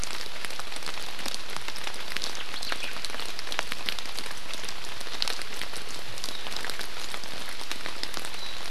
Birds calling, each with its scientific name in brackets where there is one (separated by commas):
Warbling White-eye (Zosterops japonicus), Omao (Myadestes obscurus)